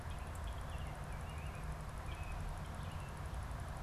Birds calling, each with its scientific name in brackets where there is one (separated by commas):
American Robin (Turdus migratorius)